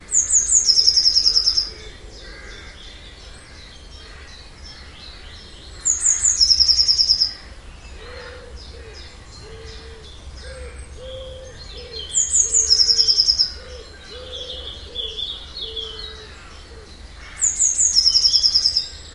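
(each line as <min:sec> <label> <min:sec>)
0:00.0 A bird chirps in the background. 0:19.1
0:00.0 A bird sings loudly and repeatedly. 0:01.9
0:05.8 A bird sings loudly and repeatedly. 0:07.5
0:08.4 An owl is calling repeatedly. 0:19.1
0:12.0 A bird sings loudly and repeatedly. 0:13.7
0:17.3 Birds singing loudly and repeatedly. 0:19.0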